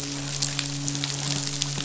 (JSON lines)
{"label": "biophony, midshipman", "recorder": "SoundTrap 500"}